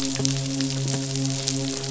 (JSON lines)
{"label": "biophony, midshipman", "recorder": "SoundTrap 500"}